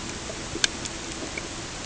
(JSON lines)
{"label": "ambient", "recorder": "HydroMoth"}